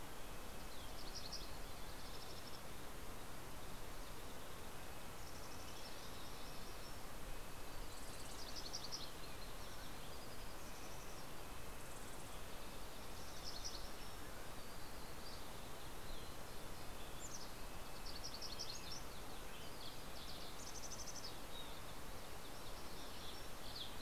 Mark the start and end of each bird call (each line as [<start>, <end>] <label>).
[0.00, 1.95] Mountain Chickadee (Poecile gambeli)
[0.00, 1.95] Red-breasted Nuthatch (Sitta canadensis)
[3.75, 8.64] Red-breasted Nuthatch (Sitta canadensis)
[4.64, 19.34] Yellow-rumped Warbler (Setophaga coronata)
[10.24, 14.14] Red-breasted Nuthatch (Sitta canadensis)
[15.85, 20.55] Red-breasted Nuthatch (Sitta canadensis)
[20.05, 24.01] Mountain Chickadee (Poecile gambeli)
[23.45, 24.01] Red-breasted Nuthatch (Sitta canadensis)